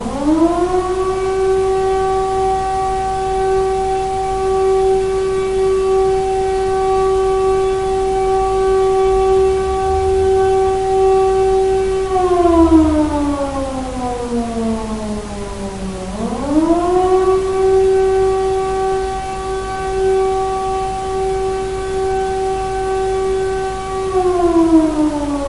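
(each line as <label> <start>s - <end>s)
An emergency alarm with an oscillating pattern sounds, indicating severe weather, evacuation, or public safety alerts. 0.0s - 25.5s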